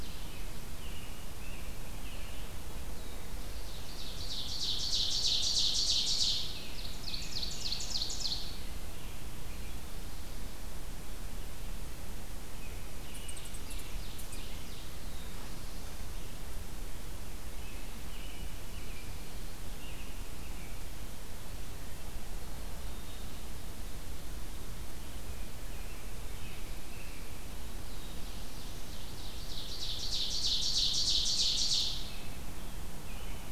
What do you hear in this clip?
Red-eyed Vireo, American Robin, Black-throated Blue Warbler, Ovenbird, unknown mammal, Black-capped Chickadee